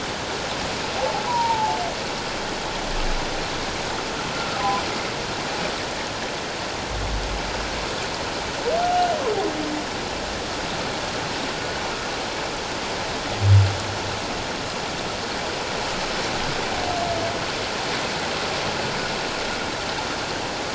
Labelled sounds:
1.0	1.8	humpback whale, 0.78 to 1.0 kHz
8.9	9.2	humpback whale, 2.8 to 2.9 kHz

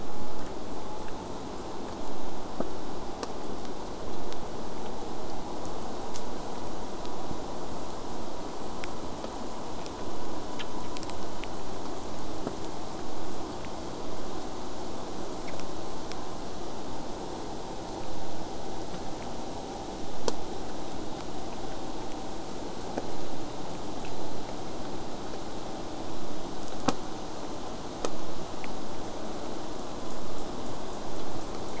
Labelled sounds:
10.8	13.5	killer whale, southern resident, J pod, 7.1 to 8.0 kHz
16.0	21.0	vessel noise, 0 to 8.0 kHz

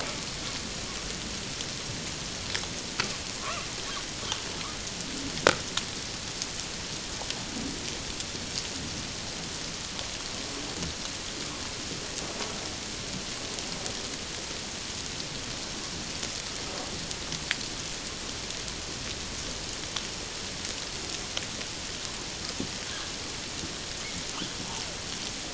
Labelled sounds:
3.4	3.7	humpback whale, 0.97 to 1.4 kHz

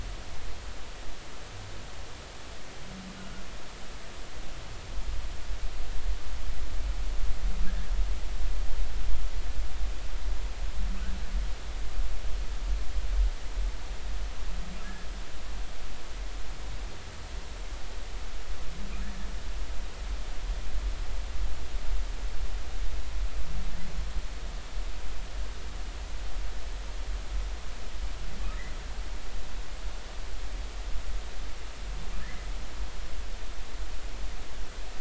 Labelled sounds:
3.2	3.4	humpback whale, 1.3 to 1.5 kHz
32.2	32.5	humpback whale, 1.6 to 2.1 kHz

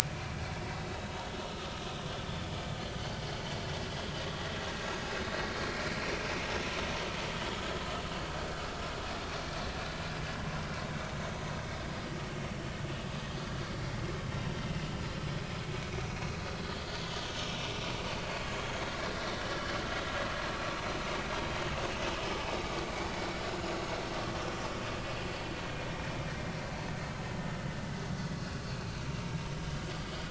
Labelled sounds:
0.3	0.6	vessel noise, 2.2 to 2.5 kHz
4.8	6.0	vessel noise, 2.0 to 6.7 kHz
6.4	6.7	vessel noise, 5.3 to 5.5 kHz
18.0	18.3	vessel noise, 4.5 to 4.7 kHz
23.7	24.0	vessel noise, 4.2 to 4.4 kHz
29.5	29.8	vessel noise, 2.9 to 3.0 kHz

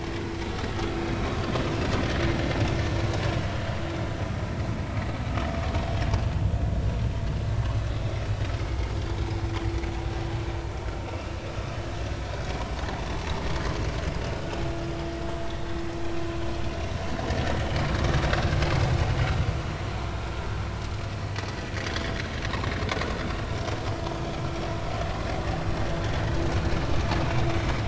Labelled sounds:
0.7	1.0	vessel noise, 1.2 to 1.4 kHz
21.8	22.1	vessel noise, 3.1 to 3.6 kHz

